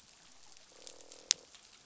{"label": "biophony, croak", "recorder": "SoundTrap 500"}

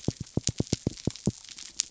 {"label": "biophony", "recorder": "SoundTrap 300"}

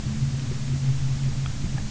{"label": "anthrophony, boat engine", "recorder": "SoundTrap 300"}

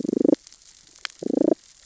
{"label": "biophony, damselfish", "recorder": "SoundTrap 600 or HydroMoth"}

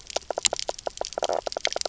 {"label": "biophony, knock croak", "recorder": "SoundTrap 300"}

